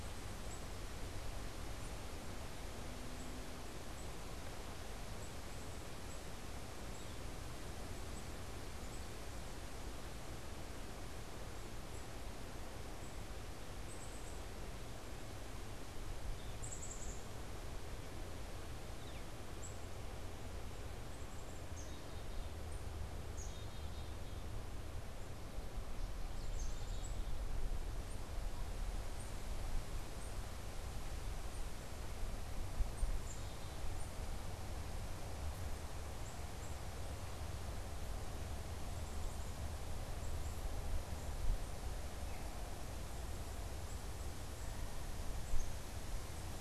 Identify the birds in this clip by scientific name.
Poecile atricapillus, Colaptes auratus